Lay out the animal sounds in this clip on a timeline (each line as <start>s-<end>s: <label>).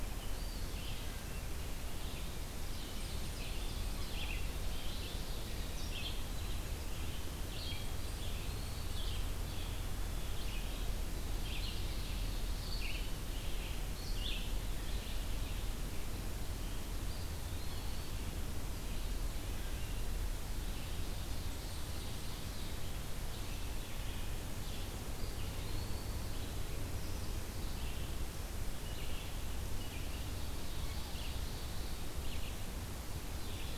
0.0s-33.8s: Red-eyed Vireo (Vireo olivaceus)
0.1s-1.1s: Eastern Wood-Pewee (Contopus virens)
0.9s-1.5s: Wood Thrush (Hylocichla mustelina)
2.6s-5.7s: Ovenbird (Seiurus aurocapilla)
8.0s-9.0s: Eastern Wood-Pewee (Contopus virens)
11.3s-12.6s: Ovenbird (Seiurus aurocapilla)
17.0s-18.3s: Eastern Wood-Pewee (Contopus virens)
20.7s-22.9s: Ovenbird (Seiurus aurocapilla)
25.0s-26.0s: Eastern Wood-Pewee (Contopus virens)
30.0s-32.0s: Ovenbird (Seiurus aurocapilla)
33.3s-33.8s: Ovenbird (Seiurus aurocapilla)